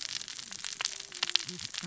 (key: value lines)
label: biophony, cascading saw
recorder: SoundTrap 600 or HydroMoth